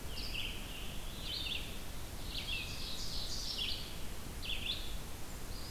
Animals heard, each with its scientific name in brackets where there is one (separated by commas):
Blackburnian Warbler (Setophaga fusca), Red-eyed Vireo (Vireo olivaceus), Ovenbird (Seiurus aurocapilla), Scarlet Tanager (Piranga olivacea)